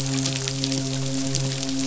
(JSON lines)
{"label": "biophony, midshipman", "recorder": "SoundTrap 500"}